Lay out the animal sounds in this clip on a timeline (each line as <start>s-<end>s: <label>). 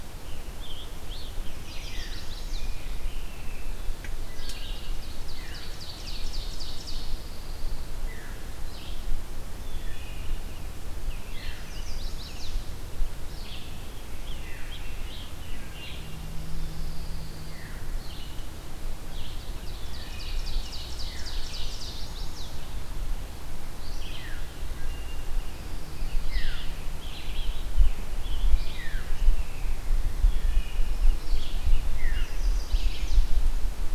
0.0s-2.2s: Scarlet Tanager (Piranga olivacea)
1.4s-4.0s: Rose-breasted Grosbeak (Pheucticus ludovicianus)
1.4s-2.8s: Chestnut-sided Warbler (Setophaga pensylvanica)
4.1s-7.5s: Ovenbird (Seiurus aurocapilla)
4.3s-4.8s: Wood Thrush (Hylocichla mustelina)
5.2s-5.7s: Veery (Catharus fuscescens)
6.5s-8.1s: Pine Warbler (Setophaga pinus)
7.9s-8.4s: Veery (Catharus fuscescens)
8.4s-33.9s: Red-eyed Vireo (Vireo olivaceus)
9.4s-10.7s: Wood Thrush (Hylocichla mustelina)
11.4s-12.9s: Chestnut-sided Warbler (Setophaga pensylvanica)
13.8s-16.2s: Scarlet Tanager (Piranga olivacea)
16.3s-17.8s: Pine Warbler (Setophaga pinus)
17.5s-21.6s: Veery (Catharus fuscescens)
19.2s-22.0s: Ovenbird (Seiurus aurocapilla)
21.4s-22.5s: Chestnut-sided Warbler (Setophaga pensylvanica)
23.7s-24.6s: Veery (Catharus fuscescens)
26.2s-26.6s: Veery (Catharus fuscescens)
27.0s-29.8s: Scarlet Tanager (Piranga olivacea)
28.7s-29.1s: Veery (Catharus fuscescens)
30.2s-30.8s: Wood Thrush (Hylocichla mustelina)
31.8s-33.5s: Chestnut-sided Warbler (Setophaga pensylvanica)
31.9s-32.3s: Veery (Catharus fuscescens)